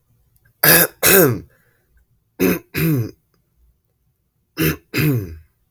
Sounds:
Cough